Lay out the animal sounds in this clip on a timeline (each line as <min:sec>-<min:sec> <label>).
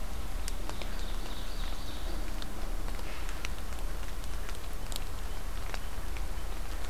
0:00.3-0:02.3 Ovenbird (Seiurus aurocapilla)